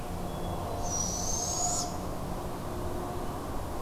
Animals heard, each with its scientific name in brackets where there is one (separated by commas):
Barred Owl (Strix varia), Hermit Thrush (Catharus guttatus)